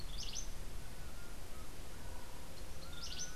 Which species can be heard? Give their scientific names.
Cantorchilus modestus, Herpetotheres cachinnans